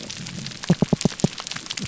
{"label": "biophony, pulse", "recorder": "SoundTrap 300"}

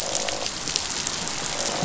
{"label": "biophony, croak", "recorder": "SoundTrap 500"}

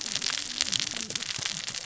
{"label": "biophony, cascading saw", "recorder": "SoundTrap 600 or HydroMoth"}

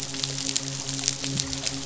{"label": "biophony, midshipman", "recorder": "SoundTrap 500"}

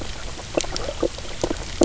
{"label": "biophony, knock croak", "recorder": "SoundTrap 300"}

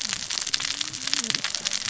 {"label": "biophony, cascading saw", "recorder": "SoundTrap 600 or HydroMoth"}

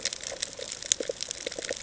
{"label": "ambient", "recorder": "HydroMoth"}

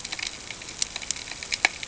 {"label": "ambient", "recorder": "HydroMoth"}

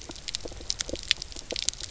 {"label": "biophony", "recorder": "SoundTrap 300"}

